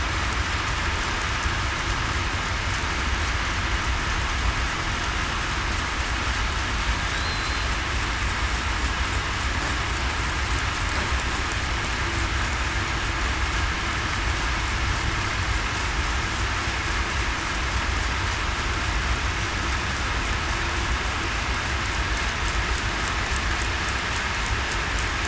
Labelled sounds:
7.1	7.6	killer whale, southern resident, 3.7 to 4.2 kHz

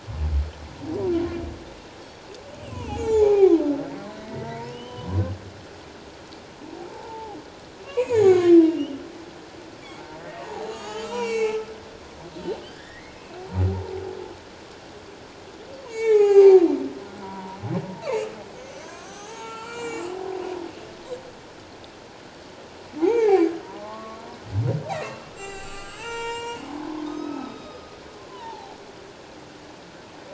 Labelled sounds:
2.6	3.6	humpback whale, 0.78 to 7.2 kHz
4.3	5.2	humpback whale, 0.88 to 3.2 kHz
6.9	9.0	humpback whale, 0.78 to 7.1 kHz
10.2	11.6	humpback whale, 0.78 to 7.8 kHz
12.6	13.4	humpback whale, 1.5 to 2.7 kHz
15.9	20.1	humpback whale, 0.78 to 7.8 kHz
23.0	24.2	humpback whale, 0.78 to 6.8 kHz
25.4	27.9	humpback whale, 0.78 to 7.9 kHz
28.3	28.8	humpback whale, 0.78 to 1.1 kHz

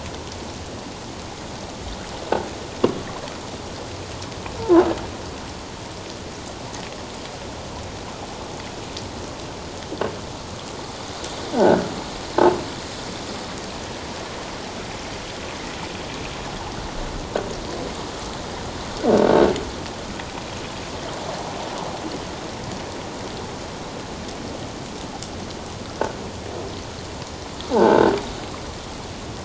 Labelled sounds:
11.5	11.9	croaking sound likely from a nearby submerged object, 1.4 to 1.7 kHz
27.7	28.1	croaking sound likely from a nearby submerged object, 0.78 to 1.7 kHz

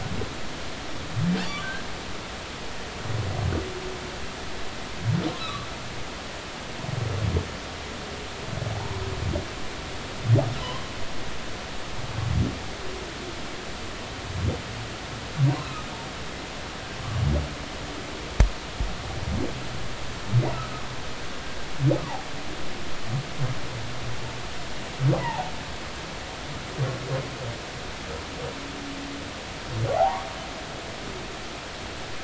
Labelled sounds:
1.5	1.7	humpback whale, 1.1 to 1.2 kHz
5.4	5.7	humpback whale, 1.1 to 4.1 kHz
8.7	9.0	humpback whale, 0.80 to 1.1 kHz
15.6	15.8	humpback whale, 2.4 to 2.8 kHz
25.2	25.5	humpback whale, 0.80 to 1.1 kHz
30.0	30.2	humpback whale, 0.80 to 1.2 kHz

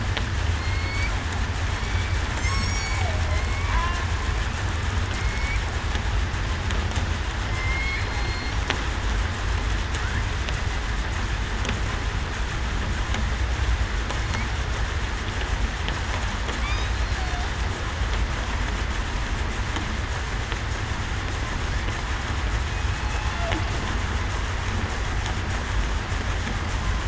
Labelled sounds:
0.6	1.1	killer whale, southern resident, 2.1 to 4.6 kHz
1.8	2.8	killer whale, southern resident, 2.2 to 7.9 kHz
3.2	3.6	killer whale, southern resident, 4.1 to 4.4 kHz
5.1	5.6	killer whale, southern resident, 2.1 to 2.4 kHz
7.5	8.0	killer whale, southern resident, 2.0 to 2.3 kHz

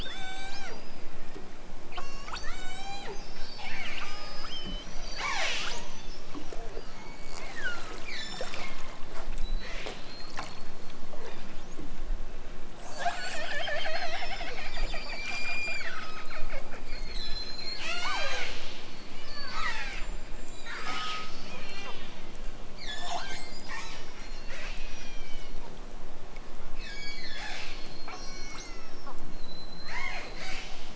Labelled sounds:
0.0	0.9	killer whale, southern Alaska resident, 0.55 to 8.0 kHz
1.8	3.1	killer whale, southern Alaska resident, 0.46 to 8.0 kHz
3.5	5.9	killer whale, southern Alaska resident, 0.51 to 8.0 kHz
6.9	8.9	killer whale, southern Alaska resident, 0.64 to 8.0 kHz
9.4	10.0	killer whale, southern Alaska resident, 1.5 to 8.0 kHz
13.7	16.5	killer whale, southern Alaska resident, 0.92 to 8.0 kHz
16.8	18.7	killer whale, southern Alaska resident, 0.23 to 8.0 kHz
19.2	22.2	killer whale, southern Alaska resident, 0.51 to 8.0 kHz
22.7	25.7	killer whale, southern Alaska resident, 0.46 to 8.0 kHz
26.7	29.1	killer whale, southern Alaska resident, 0.41 to 8.0 kHz
29.3	30.9	killer whale, southern Alaska resident, 0.32 to 8.0 kHz

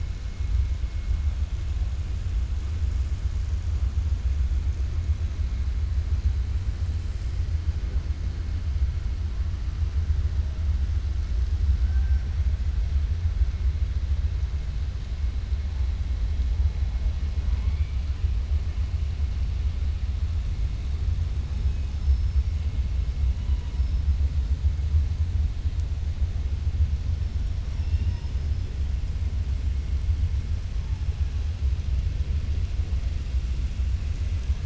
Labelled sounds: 21.9	22.5	killer whale, 4.5 to 5.6 kHz
27.6	28.4	killer whale, 0.89 to 6.1 kHz

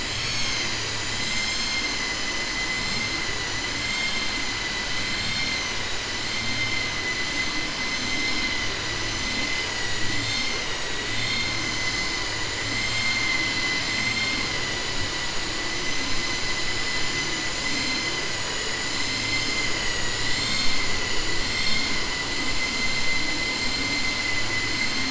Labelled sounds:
12.8	14.4	vessel noise, 1.3 to 4.3 kHz

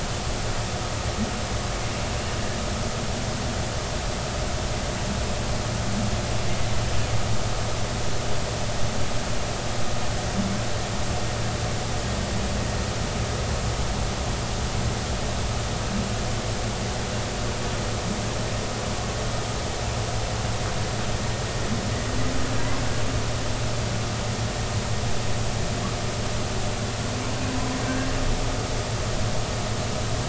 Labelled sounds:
27.8	28.1	humpback whale, 1.5 to 1.7 kHz

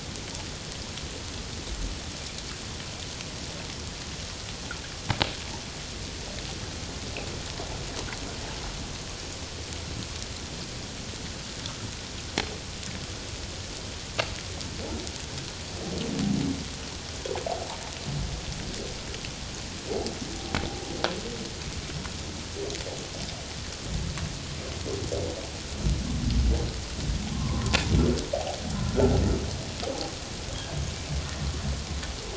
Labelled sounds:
27.3	27.8	humpback whale, 0.97 to 1.2 kHz
28.8	29.1	humpback whale, 1.3 to 1.5 kHz

